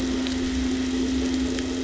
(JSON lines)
{"label": "anthrophony, boat engine", "recorder": "SoundTrap 500"}